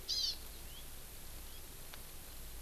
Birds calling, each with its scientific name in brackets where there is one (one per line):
Hawaiian Hawk (Buteo solitarius)